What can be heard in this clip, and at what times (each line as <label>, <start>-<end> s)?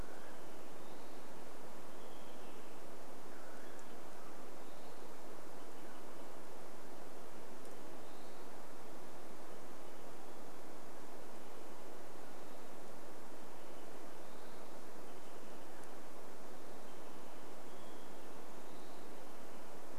Western Wood-Pewee song, 0-2 s
unidentified sound, 0-6 s
Olive-sided Flycatcher call, 2-18 s
Western Wood-Pewee song, 4-6 s
Western Wood-Pewee song, 8-10 s
Western Wood-Pewee song, 14-16 s
Olive-sided Flycatcher song, 16-18 s
Western Wood-Pewee song, 18-20 s